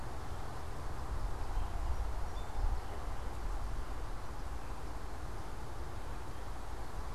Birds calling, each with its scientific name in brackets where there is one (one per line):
Song Sparrow (Melospiza melodia)